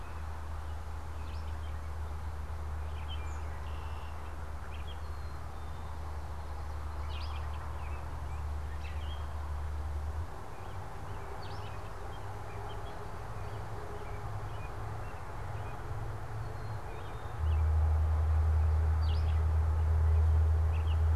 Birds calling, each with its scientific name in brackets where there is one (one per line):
Black-capped Chickadee (Poecile atricapillus)
Gray Catbird (Dumetella carolinensis)
American Robin (Turdus migratorius)